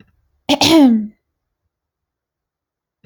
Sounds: Throat clearing